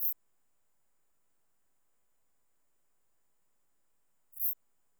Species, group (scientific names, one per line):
Eupholidoptera latens
Orthoptera